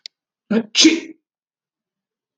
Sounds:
Sneeze